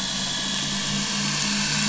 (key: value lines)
label: anthrophony, boat engine
recorder: SoundTrap 500